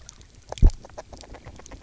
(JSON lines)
{"label": "biophony, grazing", "recorder": "SoundTrap 300"}